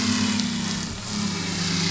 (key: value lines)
label: anthrophony, boat engine
recorder: SoundTrap 500